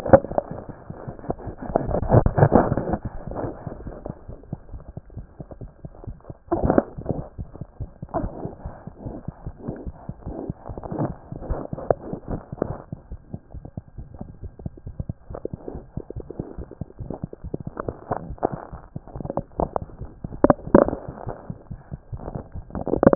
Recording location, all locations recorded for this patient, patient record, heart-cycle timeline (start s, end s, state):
mitral valve (MV)
mitral valve (MV)
#Age: Infant
#Sex: Male
#Height: nan
#Weight: 7.5 kg
#Pregnancy status: False
#Murmur: Absent
#Murmur locations: nan
#Most audible location: nan
#Systolic murmur timing: nan
#Systolic murmur shape: nan
#Systolic murmur grading: nan
#Systolic murmur pitch: nan
#Systolic murmur quality: nan
#Diastolic murmur timing: nan
#Diastolic murmur shape: nan
#Diastolic murmur grading: nan
#Diastolic murmur pitch: nan
#Diastolic murmur quality: nan
#Outcome: Normal
#Campaign: 2014 screening campaign
0.00	13.12	unannotated
13.12	13.20	S1
13.20	13.34	systole
13.34	13.40	S2
13.40	13.56	diastole
13.56	13.64	S1
13.64	13.78	systole
13.78	13.84	S2
13.84	13.98	diastole
13.98	14.08	S1
14.08	14.20	systole
14.20	14.30	S2
14.30	14.44	diastole
14.44	14.52	S1
14.52	14.64	systole
14.64	14.74	S2
14.74	14.88	diastole
14.88	14.94	S1
14.94	15.10	systole
15.10	15.16	S2
15.16	15.32	diastole
15.32	15.40	S1
15.40	15.54	systole
15.54	15.58	S2
15.58	15.72	diastole
15.72	15.84	S1
15.84	15.96	systole
15.96	16.04	S2
16.04	16.16	diastole
16.16	16.26	S1
16.26	16.40	systole
16.40	16.46	S2
16.46	16.58	diastole
16.58	16.68	S1
16.68	16.80	systole
16.80	16.86	S2
16.86	17.00	diastole
17.00	17.12	S1
17.12	17.22	systole
17.22	17.30	S2
17.30	17.46	diastole
17.46	17.56	S1
17.56	17.66	systole
17.66	17.74	S2
17.74	17.88	diastole
17.88	17.96	S1
17.96	18.10	systole
18.10	23.15	unannotated